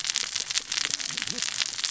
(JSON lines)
{"label": "biophony, cascading saw", "recorder": "SoundTrap 600 or HydroMoth"}